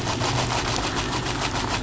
{"label": "anthrophony, boat engine", "recorder": "SoundTrap 500"}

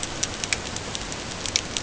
{"label": "ambient", "recorder": "HydroMoth"}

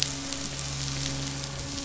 {"label": "anthrophony, boat engine", "recorder": "SoundTrap 500"}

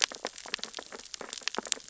{"label": "biophony, sea urchins (Echinidae)", "recorder": "SoundTrap 600 or HydroMoth"}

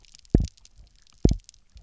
{"label": "biophony, double pulse", "recorder": "SoundTrap 300"}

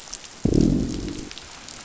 {"label": "biophony, growl", "recorder": "SoundTrap 500"}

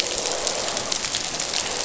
{"label": "biophony", "recorder": "SoundTrap 500"}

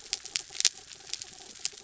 {"label": "anthrophony, mechanical", "recorder": "SoundTrap 300"}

